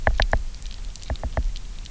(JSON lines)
{"label": "biophony, knock", "recorder": "SoundTrap 300"}